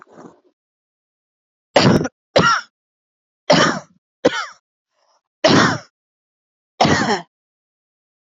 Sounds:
Cough